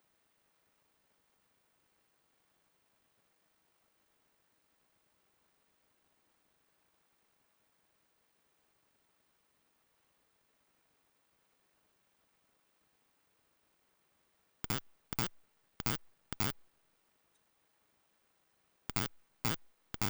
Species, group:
Poecilimon propinquus
Orthoptera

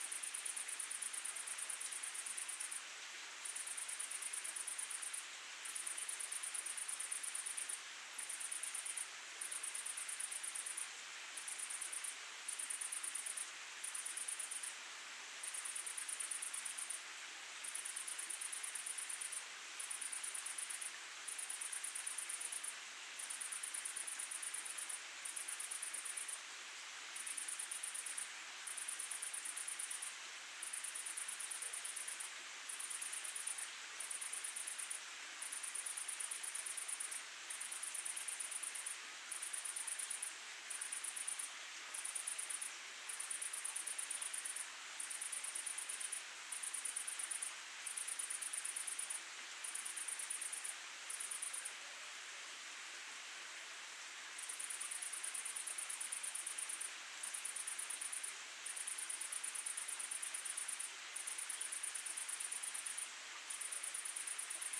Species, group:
Tettigonia viridissima
Orthoptera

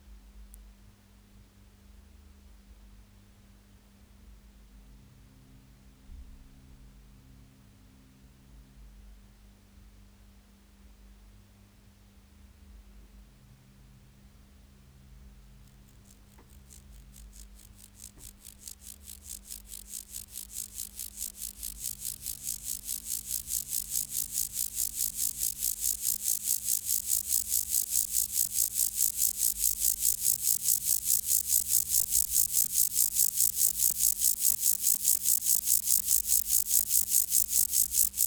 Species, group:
Chorthippus vagans
Orthoptera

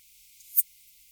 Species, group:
Poecilimon affinis
Orthoptera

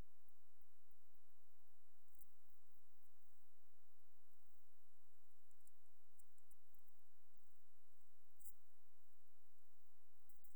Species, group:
Poecilimon jonicus
Orthoptera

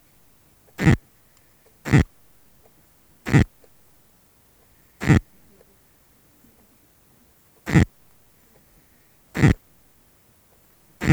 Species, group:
Poecilimon luschani
Orthoptera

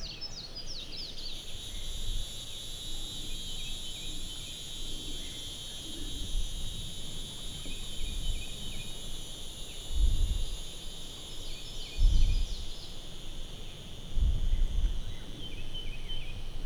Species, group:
Neocicada hieroglyphica
Cicadidae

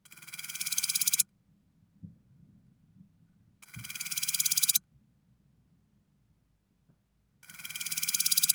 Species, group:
Chorthippus apicalis
Orthoptera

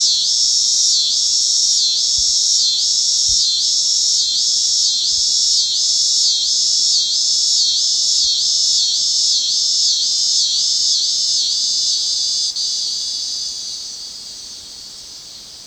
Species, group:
Neotibicen pruinosus
Cicadidae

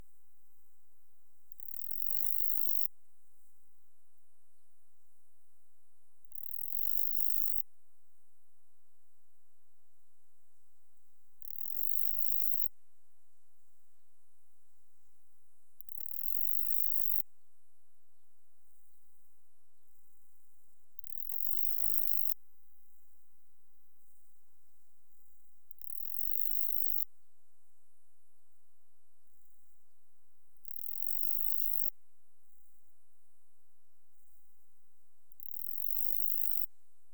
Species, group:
Saga hellenica
Orthoptera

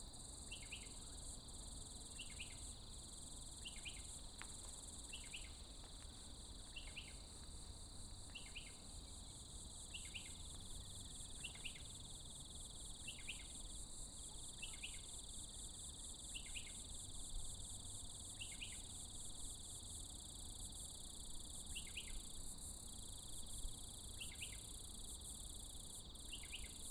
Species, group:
Atrapsalta furcilla
Cicadidae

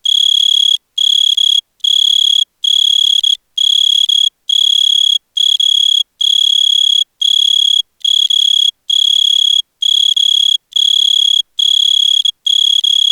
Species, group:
Oecanthus pellucens
Orthoptera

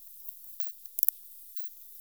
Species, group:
Isophya camptoxypha
Orthoptera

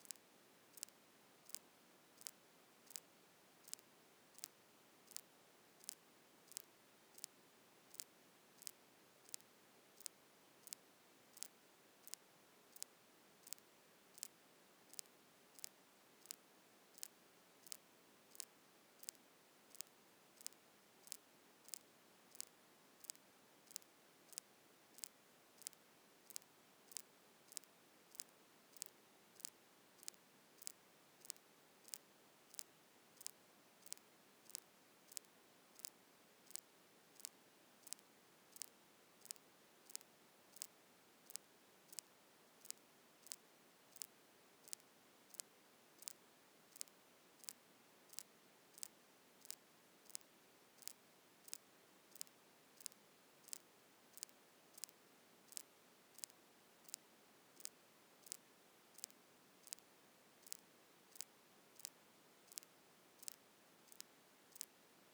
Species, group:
Ctenodecticus major
Orthoptera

